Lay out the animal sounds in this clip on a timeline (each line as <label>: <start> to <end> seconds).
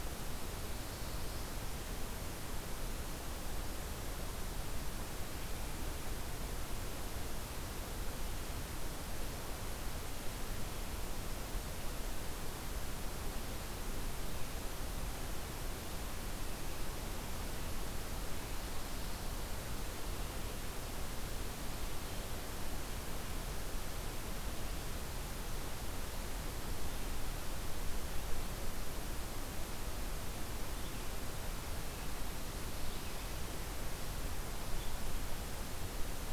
Black-throated Blue Warbler (Setophaga caerulescens): 0.0 to 2.0 seconds
Ovenbird (Seiurus aurocapilla): 17.8 to 20.3 seconds